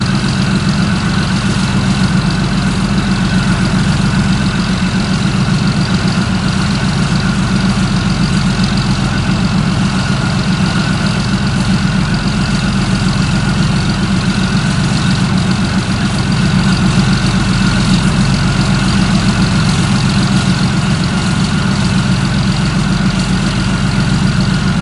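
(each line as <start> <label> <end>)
0.0 An armored vehicle idles with a deep, rumbling diesel engine causing its metal parts to resonate. 24.8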